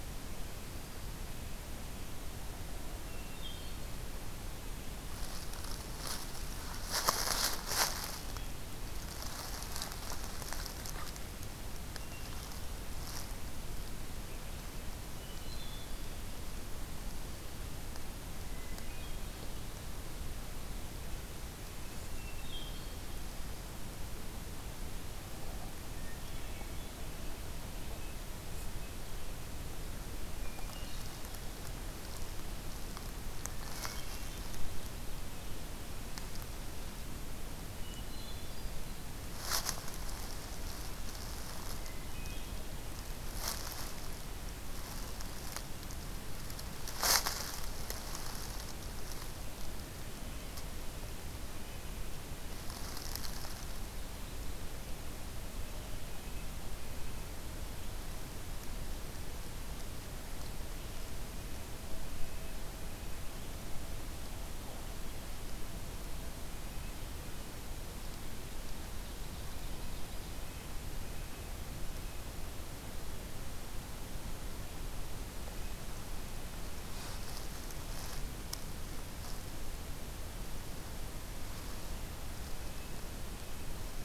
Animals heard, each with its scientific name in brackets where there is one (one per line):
Red-breasted Nuthatch (Sitta canadensis)
Hermit Thrush (Catharus guttatus)
Ovenbird (Seiurus aurocapilla)